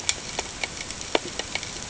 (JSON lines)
{"label": "ambient", "recorder": "HydroMoth"}